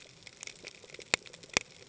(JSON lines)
{"label": "ambient", "recorder": "HydroMoth"}